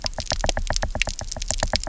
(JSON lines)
{"label": "biophony, knock", "recorder": "SoundTrap 300"}